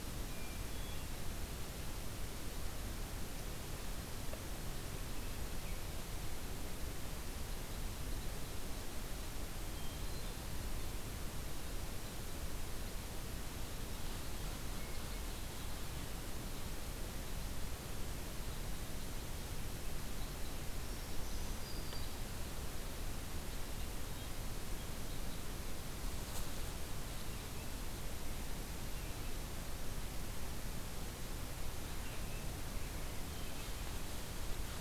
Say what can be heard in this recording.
Hermit Thrush, unidentified call, Black-throated Green Warbler, Red-breasted Nuthatch, American Robin